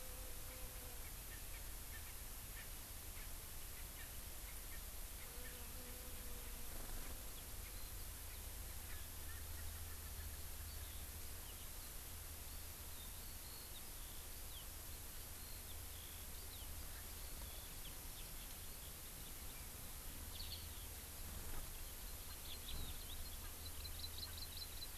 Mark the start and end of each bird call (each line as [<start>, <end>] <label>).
[1.30, 1.60] Erckel's Francolin (Pternistis erckelii)
[2.50, 2.60] Erckel's Francolin (Pternistis erckelii)
[3.10, 3.30] Erckel's Francolin (Pternistis erckelii)
[3.90, 4.10] Erckel's Francolin (Pternistis erckelii)
[4.40, 4.80] Erckel's Francolin (Pternistis erckelii)
[5.10, 5.60] Erckel's Francolin (Pternistis erckelii)
[9.30, 10.40] Erckel's Francolin (Pternistis erckelii)
[12.80, 20.90] Eurasian Skylark (Alauda arvensis)
[23.70, 24.90] Hawaii Amakihi (Chlorodrepanis virens)